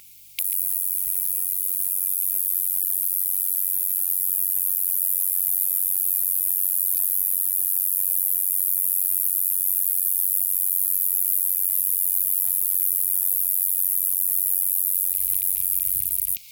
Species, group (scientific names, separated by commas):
Roeseliana ambitiosa, Orthoptera